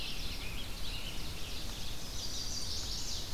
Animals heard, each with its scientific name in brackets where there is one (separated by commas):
Ovenbird (Seiurus aurocapilla), Scarlet Tanager (Piranga olivacea), Chestnut-sided Warbler (Setophaga pensylvanica)